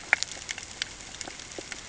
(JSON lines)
{"label": "ambient", "recorder": "HydroMoth"}